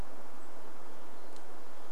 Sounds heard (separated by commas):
unidentified sound, unidentified bird chip note